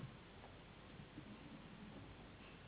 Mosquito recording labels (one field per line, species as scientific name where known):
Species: Anopheles gambiae s.s.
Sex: female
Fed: unfed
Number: one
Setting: insect culture